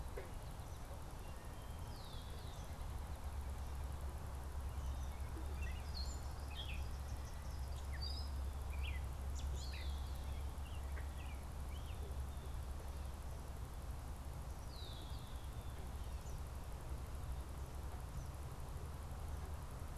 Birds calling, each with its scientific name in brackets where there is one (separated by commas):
Gray Catbird (Dumetella carolinensis), Red-winged Blackbird (Agelaius phoeniceus)